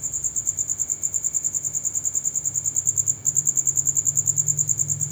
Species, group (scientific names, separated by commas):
Gryllodes sigillatus, Orthoptera